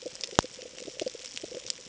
{"label": "ambient", "recorder": "HydroMoth"}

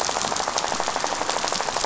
{"label": "biophony, rattle", "recorder": "SoundTrap 500"}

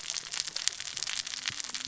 {"label": "biophony, cascading saw", "recorder": "SoundTrap 600 or HydroMoth"}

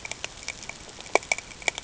{"label": "ambient", "recorder": "HydroMoth"}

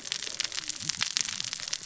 {"label": "biophony, cascading saw", "recorder": "SoundTrap 600 or HydroMoth"}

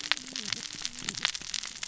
{"label": "biophony, cascading saw", "recorder": "SoundTrap 600 or HydroMoth"}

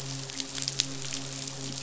{"label": "biophony, midshipman", "recorder": "SoundTrap 500"}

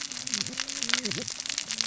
{"label": "biophony, cascading saw", "recorder": "SoundTrap 600 or HydroMoth"}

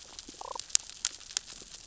{"label": "biophony, damselfish", "recorder": "SoundTrap 600 or HydroMoth"}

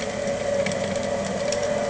{"label": "anthrophony, boat engine", "recorder": "HydroMoth"}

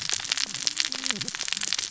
{"label": "biophony, cascading saw", "recorder": "SoundTrap 600 or HydroMoth"}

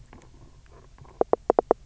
{"label": "biophony, knock", "recorder": "SoundTrap 300"}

